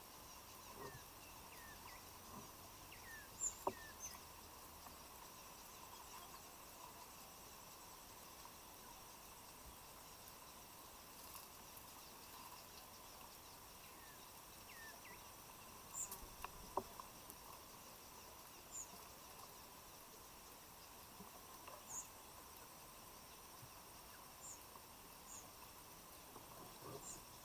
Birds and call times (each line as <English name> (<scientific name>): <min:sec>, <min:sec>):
African Emerald Cuckoo (Chrysococcyx cupreus): 0:02.9, 0:14.6
White-eyed Slaty-Flycatcher (Melaenornis fischeri): 0:21.8